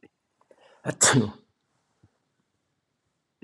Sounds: Sneeze